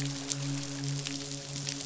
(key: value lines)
label: biophony, midshipman
recorder: SoundTrap 500